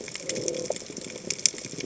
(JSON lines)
{"label": "biophony", "recorder": "HydroMoth"}